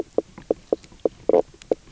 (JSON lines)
{"label": "biophony, knock croak", "recorder": "SoundTrap 300"}